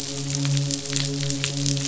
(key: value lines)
label: biophony, midshipman
recorder: SoundTrap 500